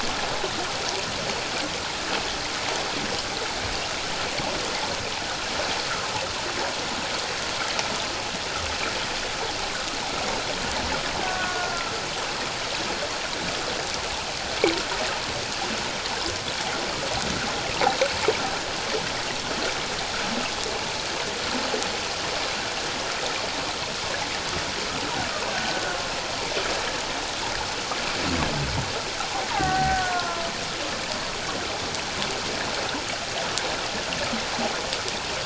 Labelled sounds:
3.7	4.0	killer whale, Bigg's (transient), 2.7 to 2.8 kHz
11.2	11.9	killer whale, Bigg's (transient), 0.97 to 1.6 kHz
25.5	26.0	killer whale, Bigg's (transient), 1.4 to 1.7 kHz
29.5	30.4	killer whale, Bigg's (transient), 0.78 to 2.0 kHz

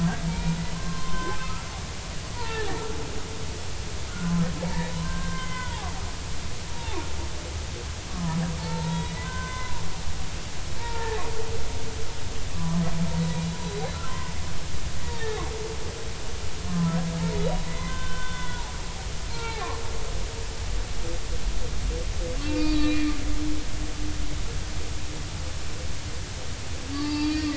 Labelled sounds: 0.0	1.7	humpback whale, 0.90 to 3.2 kHz
2.3	2.7	humpback whale, 0.83 to 2.0 kHz
4.1	5.9	humpback whale, 0.80 to 3.6 kHz
6.7	7.0	humpback whale, 0.80 to 3.8 kHz
8.1	9.7	humpback whale, 0.86 to 2.1 kHz
10.8	11.2	humpback whale, 0.80 to 1.9 kHz
12.5	12.8	humpback whale, 0.96 to 1.2 kHz
13.3	14.3	humpback whale, 0.96 to 4.0 kHz
15.1	15.4	humpback whale, 0.80 to 3.9 kHz
16.7	17.0	humpback whale, 0.96 to 1.1 kHz
17.6	18.6	humpback whale, 0.96 to 3.6 kHz
19.3	19.7	humpback whale, 0.80 to 2.8 kHz
22.5	23.2	humpback whale, 2.3 to 4.4 kHz
26.9	27.5	humpback whale, 0.83 to 4.9 kHz

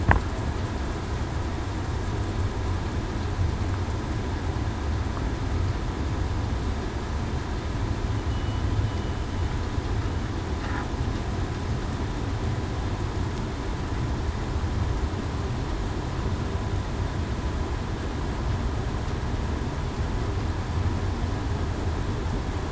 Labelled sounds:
8.3	8.6	killer whale, southern resident, 2.9 to 3.0 kHz

